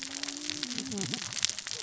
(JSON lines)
{"label": "biophony, cascading saw", "recorder": "SoundTrap 600 or HydroMoth"}